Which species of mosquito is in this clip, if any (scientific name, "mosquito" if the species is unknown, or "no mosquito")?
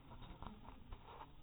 mosquito